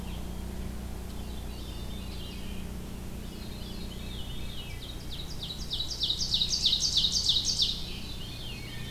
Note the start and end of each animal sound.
1.0s-2.7s: Veery (Catharus fuscescens)
3.1s-4.9s: Veery (Catharus fuscescens)
4.6s-8.2s: Ovenbird (Seiurus aurocapilla)
5.3s-6.7s: Black-and-white Warbler (Mniotilta varia)
7.7s-8.9s: Veery (Catharus fuscescens)

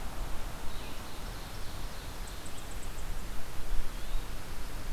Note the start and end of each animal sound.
0.0s-4.9s: Blue-headed Vireo (Vireo solitarius)
0.6s-2.4s: Ovenbird (Seiurus aurocapilla)

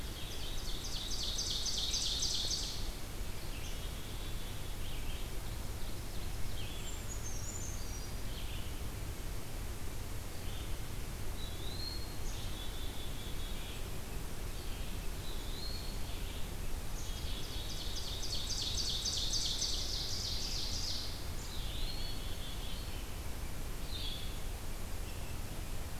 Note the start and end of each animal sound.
0.0s-0.6s: Black-capped Chickadee (Poecile atricapillus)
0.0s-3.0s: Ovenbird (Seiurus aurocapilla)
3.4s-5.3s: Black-capped Chickadee (Poecile atricapillus)
5.1s-6.9s: Ovenbird (Seiurus aurocapilla)
6.4s-10.8s: Red-eyed Vireo (Vireo olivaceus)
6.6s-8.2s: Brown Creeper (Certhia americana)
11.3s-12.2s: Eastern Wood-Pewee (Contopus virens)
12.2s-13.9s: Black-capped Chickadee (Poecile atricapillus)
14.4s-26.0s: Red-eyed Vireo (Vireo olivaceus)
14.9s-16.1s: Eastern Wood-Pewee (Contopus virens)
15.6s-18.2s: Black-capped Chickadee (Poecile atricapillus)
16.8s-21.0s: Ovenbird (Seiurus aurocapilla)
21.3s-26.0s: unidentified call
21.3s-23.1s: Black-capped Chickadee (Poecile atricapillus)
21.5s-22.3s: Eastern Wood-Pewee (Contopus virens)
23.8s-26.0s: Blue-headed Vireo (Vireo solitarius)

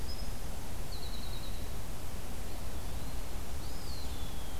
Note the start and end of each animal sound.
0.0s-2.0s: Winter Wren (Troglodytes hiemalis)
3.3s-4.6s: Eastern Wood-Pewee (Contopus virens)

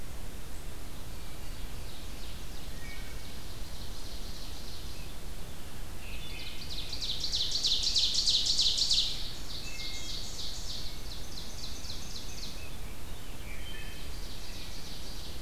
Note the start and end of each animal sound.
0.9s-5.3s: Ovenbird (Seiurus aurocapilla)
2.7s-3.2s: Wood Thrush (Hylocichla mustelina)
5.8s-12.7s: Ovenbird (Seiurus aurocapilla)
6.2s-6.8s: Wood Thrush (Hylocichla mustelina)
9.5s-10.3s: Wood Thrush (Hylocichla mustelina)
11.5s-13.9s: Rose-breasted Grosbeak (Pheucticus ludovicianus)
13.6s-14.2s: Wood Thrush (Hylocichla mustelina)
13.6s-15.4s: Ovenbird (Seiurus aurocapilla)

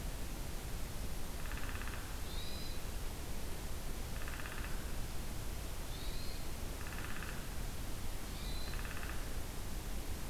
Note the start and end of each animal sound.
1.4s-2.0s: Downy Woodpecker (Dryobates pubescens)
2.3s-2.8s: Hermit Thrush (Catharus guttatus)
4.1s-4.7s: Downy Woodpecker (Dryobates pubescens)
5.9s-6.5s: Hermit Thrush (Catharus guttatus)
6.8s-7.4s: Downy Woodpecker (Dryobates pubescens)
8.3s-8.8s: Hermit Thrush (Catharus guttatus)
8.6s-9.2s: Downy Woodpecker (Dryobates pubescens)

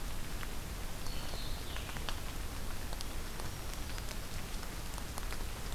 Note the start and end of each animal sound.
1.0s-2.0s: Blue-headed Vireo (Vireo solitarius)
3.1s-4.1s: Black-throated Green Warbler (Setophaga virens)

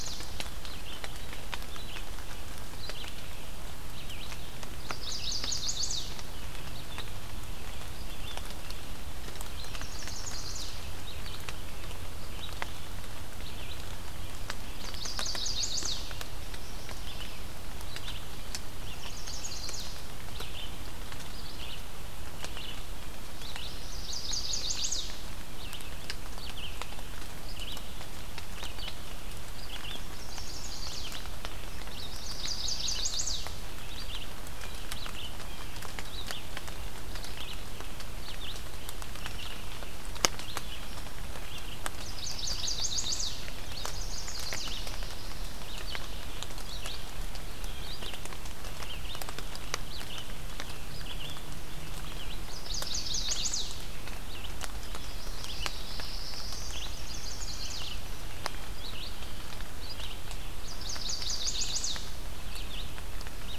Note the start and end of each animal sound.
0.0s-41.9s: Red-eyed Vireo (Vireo olivaceus)
4.7s-6.1s: Chestnut-sided Warbler (Setophaga pensylvanica)
9.4s-10.8s: Chestnut-sided Warbler (Setophaga pensylvanica)
14.7s-16.2s: Chestnut-sided Warbler (Setophaga pensylvanica)
18.7s-20.0s: Chestnut-sided Warbler (Setophaga pensylvanica)
23.7s-25.2s: Chestnut-sided Warbler (Setophaga pensylvanica)
30.2s-31.2s: Chestnut-sided Warbler (Setophaga pensylvanica)
31.9s-33.6s: Chestnut-sided Warbler (Setophaga pensylvanica)
41.8s-44.8s: Chestnut-sided Warbler (Setophaga pensylvanica)
43.3s-63.6s: Red-eyed Vireo (Vireo olivaceus)
52.3s-53.8s: Chestnut-sided Warbler (Setophaga pensylvanica)
54.7s-56.0s: Chestnut-sided Warbler (Setophaga pensylvanica)
55.3s-56.9s: Black-throated Blue Warbler (Setophaga caerulescens)
56.6s-58.1s: Chestnut-sided Warbler (Setophaga pensylvanica)
60.6s-62.1s: Chestnut-sided Warbler (Setophaga pensylvanica)

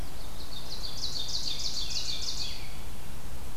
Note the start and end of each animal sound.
0.2s-2.8s: Ovenbird (Seiurus aurocapilla)
1.3s-2.8s: American Robin (Turdus migratorius)

